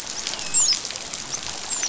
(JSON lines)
{"label": "biophony, dolphin", "recorder": "SoundTrap 500"}